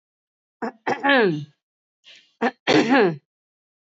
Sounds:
Throat clearing